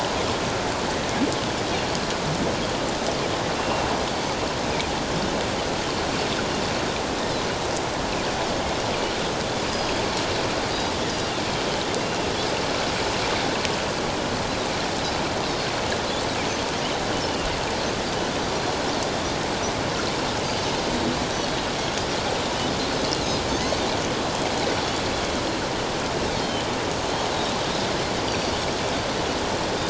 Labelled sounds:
3.5	3.9	Pacific white-sided dolphin, 2.7 to 2.8 kHz
9.7	10.0	Pacific white-sided dolphin, 4.8 to 5.0 kHz
17.1	17.5	Pacific white-sided dolphin, 2.7 to 3.1 kHz
26.4	26.7	Pacific white-sided dolphin, 3.0 to 3.2 kHz
28.3	28.5	Pacific white-sided dolphin, 4.4 to 5.8 kHz

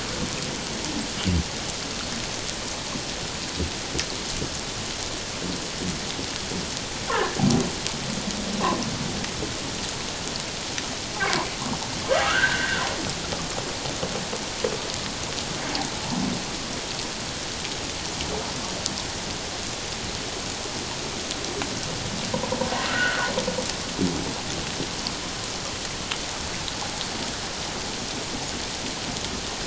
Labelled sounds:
7.1	7.4	humpback whale, 1.6 to 1.9 kHz
12.2	12.8	humpback whale, 1.1 to 1.8 kHz
22.9	23.3	humpback whale, 1.2 to 1.6 kHz

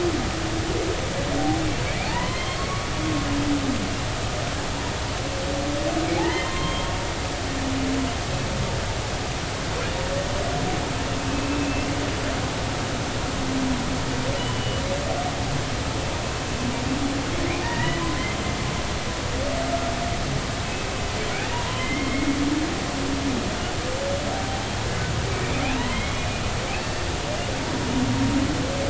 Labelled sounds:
2.0	2.9	humpback whale, 0.80 to 4.4 kHz
6.2	6.9	humpback whale, 0.80 to 3.3 kHz
11.3	11.9	humpback whale, 2.5 to 2.8 kHz
14.4	14.8	humpback whale, 2.8 to 3.0 kHz
17.6	18.0	humpback whale, 0.86 to 2.0 kHz
21.5	22.4	humpback whale, 0.90 to 3.1 kHz
25.8	26.2	humpback whale, 0.90 to 3.4 kHz
26.7	27.0	humpback whale, 2.5 to 4.5 kHz

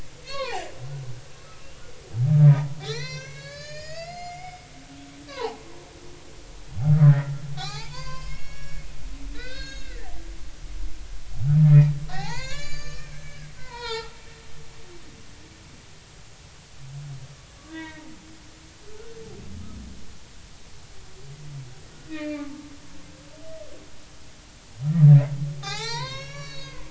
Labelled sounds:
0.2	1.0	humpback whale, 0.80 to 4.5 kHz
1.6	1.9	humpback whale, 2.6 to 3.1 kHz
2.5	4.7	humpback whale, 0.80 to 7.5 kHz
5.3	5.6	humpback whale, 0.80 to 1.2 kHz
7.0	8.9	humpback whale, 0.80 to 5.6 kHz
9.3	10.1	humpback whale, 1.3 to 6.6 kHz
11.6	14.2	humpback whale, 0.80 to 7.6 kHz
17.7	18.0	humpback whale, 0.90 to 2.3 kHz
22.1	22.6	humpback whale, 0.80 to 2.6 kHz
25.6	26.8	humpback whale, 0.80 to 7.6 kHz

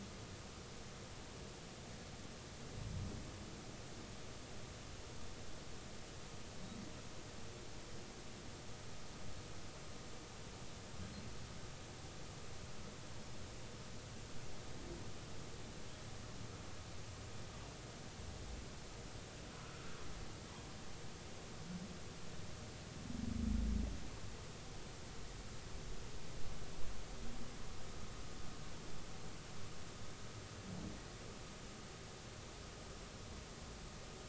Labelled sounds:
19.6	19.9	humpback whale, 1.2 to 1.4 kHz

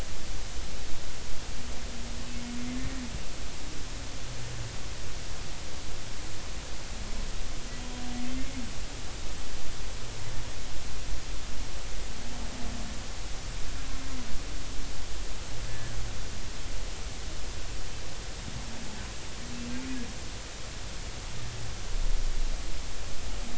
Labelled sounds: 7.8	8.0	humpback whale, 3.2 to 3.3 kHz
8.3	8.6	humpback whale, 2.0 to 2.2 kHz

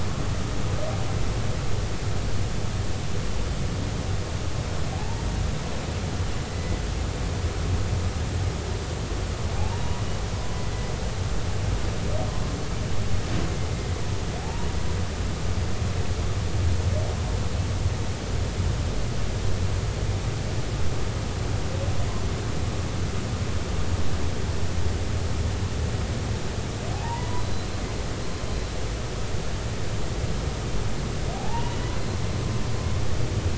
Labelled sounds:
4.9	5.3	humpback whale, 0.80 to 0.96 kHz
9.6	10.0	humpback whale, 0.80 to 0.99 kHz
14.4	14.7	humpback whale, 0.80 to 0.99 kHz
26.9	27.7	humpback whale, 0.80 to 4.1 kHz
31.3	31.8	humpback whale, 0.80 to 3.0 kHz

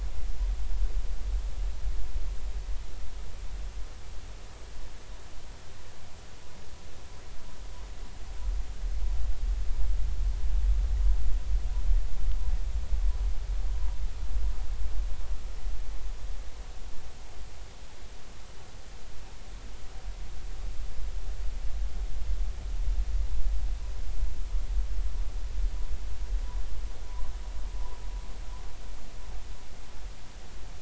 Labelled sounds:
27.1	27.3	vessel noise, 0.93 to 1.2 kHz

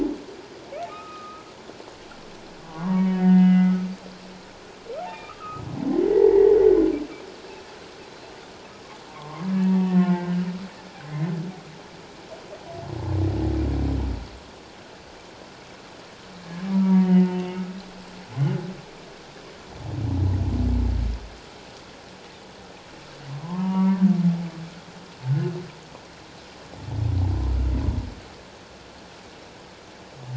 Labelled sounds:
0.9	1.4	humpback whale, 1.2 to 2.6 kHz
2.6	3.7	humpback whale, 0.88 to 3.0 kHz
5.0	5.6	humpback whale, 1.2 to 3.7 kHz
6.0	6.6	humpback whale, 1.8 to 2.1 kHz
8.1	8.4	humpback whale, 4.0 to 4.2 kHz
9.1	10.4	humpback whale, 0.84 to 1.9 kHz
11.1	11.3	humpback whale, 1.9 to 2.2 kHz
16.7	17.6	humpback whale, 0.88 to 2.9 kHz
23.4	24.0	humpback whale, 0.81 to 2.9 kHz

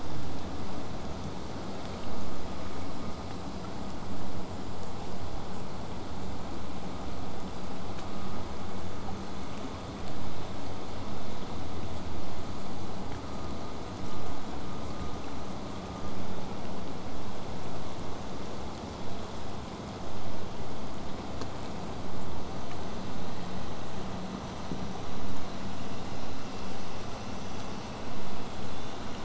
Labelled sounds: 16.0	21.0	vessel noise, 0 to 8.0 kHz

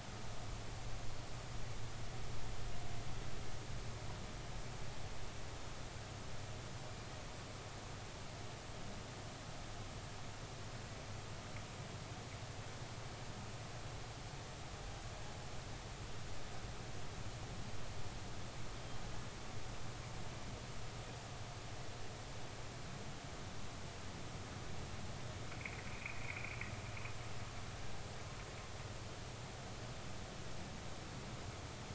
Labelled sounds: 25.6	26.6	humpback whale, 1.9 to 2.7 kHz

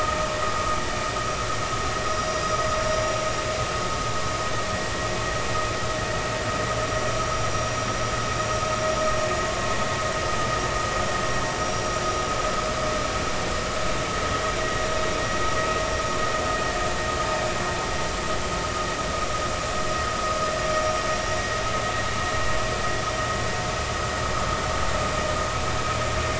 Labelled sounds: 2.0	3.0	vessel noise, 4.9 to 5.7 kHz
6.7	7.0	vessel noise, 5.7 to 5.8 kHz
7.5	7.8	vessel noise, 5.6 to 5.8 kHz

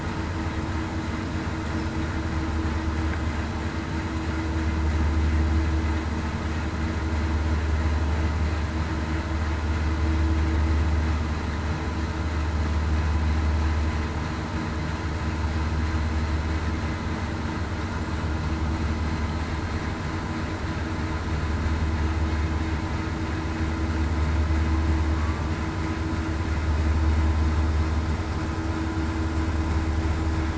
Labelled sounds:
25.1	25.5	killer whale, southern resident, 1.1 to 1.2 kHz

